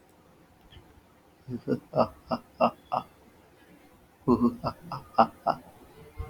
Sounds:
Laughter